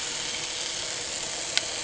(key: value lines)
label: anthrophony, boat engine
recorder: HydroMoth